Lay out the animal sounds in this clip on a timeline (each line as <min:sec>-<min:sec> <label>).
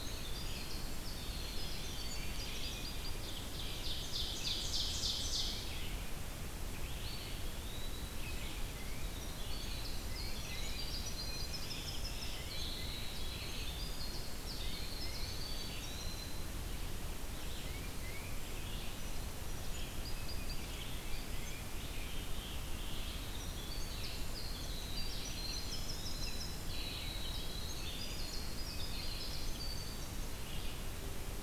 0:00.0-0:03.5 Winter Wren (Troglodytes hiemalis)
0:00.0-0:07.5 Red-eyed Vireo (Vireo olivaceus)
0:03.1-0:05.8 Ovenbird (Seiurus aurocapilla)
0:06.8-0:08.5 Eastern Wood-Pewee (Contopus virens)
0:08.0-0:09.3 Tufted Titmouse (Baeolophus bicolor)
0:08.2-0:31.4 Red-eyed Vireo (Vireo olivaceus)
0:08.6-0:16.9 Winter Wren (Troglodytes hiemalis)
0:10.0-0:10.9 Tufted Titmouse (Baeolophus bicolor)
0:12.2-0:13.1 Tufted Titmouse (Baeolophus bicolor)
0:14.4-0:15.4 Tufted Titmouse (Baeolophus bicolor)
0:17.5-0:18.5 Tufted Titmouse (Baeolophus bicolor)
0:18.9-0:22.0 Song Sparrow (Melospiza melodia)
0:20.4-0:22.1 Tufted Titmouse (Baeolophus bicolor)
0:21.6-0:23.3 Scarlet Tanager (Piranga olivacea)
0:22.9-0:30.6 Winter Wren (Troglodytes hiemalis)
0:25.2-0:26.9 Eastern Wood-Pewee (Contopus virens)